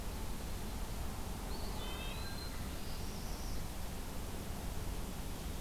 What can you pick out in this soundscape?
Eastern Wood-Pewee, Red-breasted Nuthatch, Northern Parula